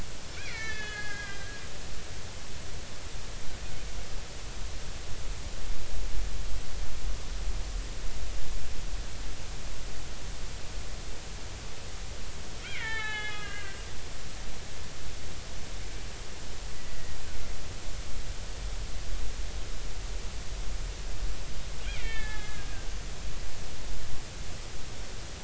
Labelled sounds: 0.3	1.6	killer whale, Bigg's (transient), 1.5 to 6.2 kHz
2.1	2.4	killer whale, Bigg's (transient), 3.1 to 3.3 kHz
12.6	13.8	killer whale, Bigg's (transient), 0.80 to 4.1 kHz
16.7	17.2	killer whale, Bigg's (transient), 1.9 to 2.0 kHz
21.9	23.0	killer whale, Bigg's (transient), 1.5 to 3.7 kHz

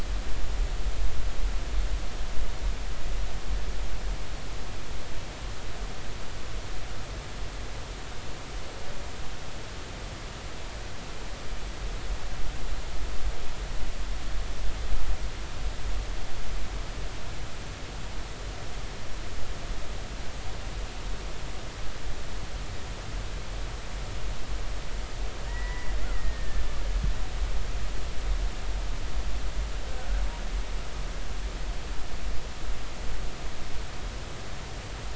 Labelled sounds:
25.5	26.6	killer whale, Bigg's (transient), 1.7 to 2.0 kHz

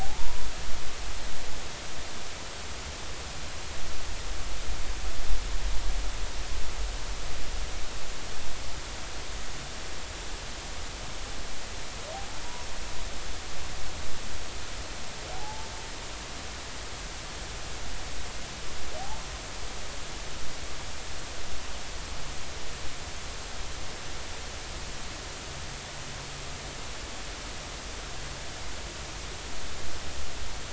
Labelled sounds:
0.0	0.5	humpback whale, 0.80 to 1.0 kHz
15.3	15.7	humpback whale, 0.80 to 0.93 kHz

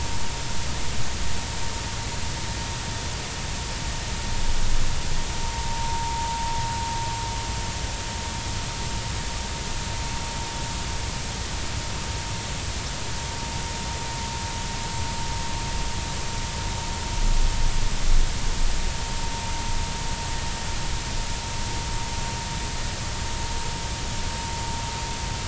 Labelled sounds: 5.5	6.3	vessel noise, 0.86 to 0.96 kHz

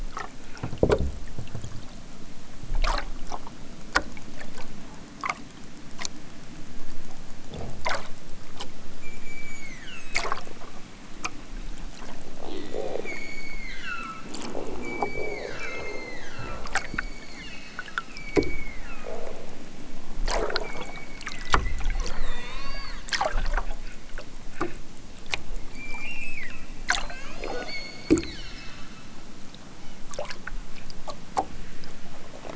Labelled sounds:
8.9	10.1	killer whale, southern Alaska resident, 1.1 to 8.0 kHz
12.9	14.4	killer whale, southern Alaska resident, 1.0 to 8.0 kHz
14.7	19.4	killer whale, southern Alaska resident, 0.87 to 8.0 kHz
20.6	23.0	killer whale, southern Alaska resident, 0.28 to 4.8 kHz
25.6	26.7	killer whale, southern Alaska resident, 1.0 to 8.0 kHz
27.0	29.2	killer whale, southern Alaska resident, 0.46 to 8.0 kHz

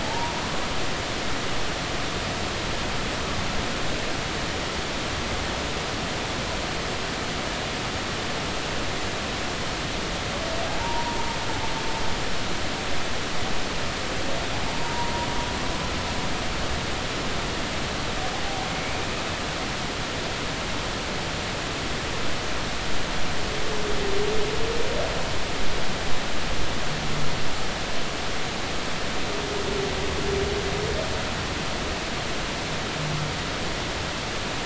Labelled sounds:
0.0	0.4	humpback whale, 0.83 to 0.99 kHz
10.8	11.2	humpback whale, 0.83 to 1.0 kHz
14.7	15.1	humpback whale, 0.90 to 1.0 kHz
18.7	19.0	humpback whale, 2.1 to 2.4 kHz

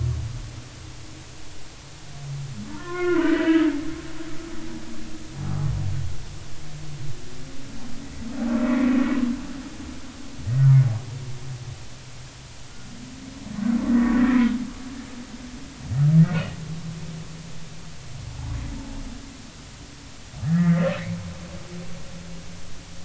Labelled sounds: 2.7	3.7	humpback whale, 0.86 to 3.1 kHz
5.3	5.7	humpback whale, 0.80 to 0.86 kHz
13.9	14.1	humpback whale, 1.8 to 2.0 kHz
20.4	21.2	humpback whale, 1.6 to 2.3 kHz

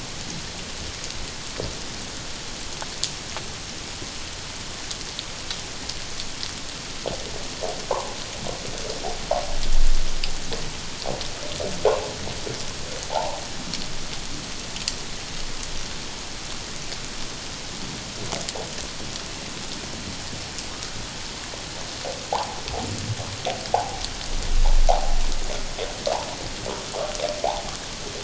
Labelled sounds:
13.1	13.4	humpback whale, 0.78 to 1.1 kHz
22.3	22.6	humpback whale, 0.78 to 1.2 kHz
23.7	24.0	humpback whale, 0.78 to 1.1 kHz
24.9	25.1	humpback whale, 0.78 to 1.1 kHz

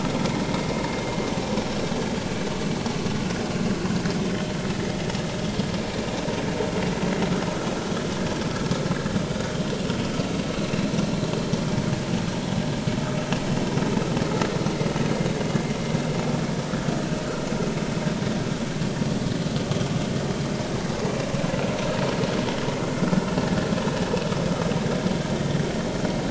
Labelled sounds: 3.1	3.4	vessel noise, 1.4 to 1.7 kHz

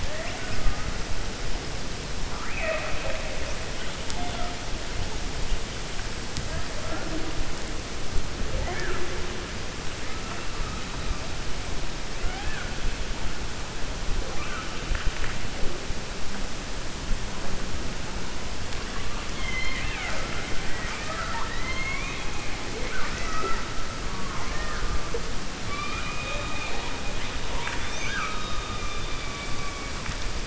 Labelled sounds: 19.3	22.3	killer whale, 0.57 to 4.3 kHz
25.6	26.9	killer whale, 0.56 to 4.8 kHz
27.4	28.7	killer whale, 0.66 to 6.3 kHz

